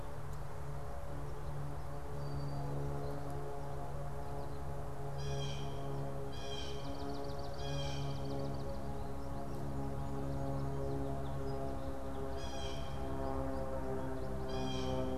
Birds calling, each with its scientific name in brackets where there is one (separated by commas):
unidentified bird, Blue Jay (Cyanocitta cristata), Swamp Sparrow (Melospiza georgiana)